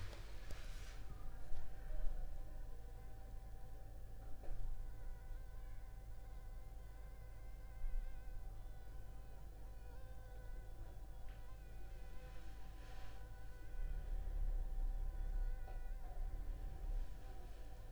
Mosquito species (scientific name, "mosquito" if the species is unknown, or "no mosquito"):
Anopheles funestus s.s.